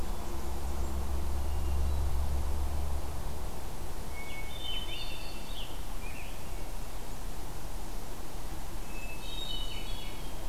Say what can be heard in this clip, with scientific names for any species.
Catharus guttatus, Piranga olivacea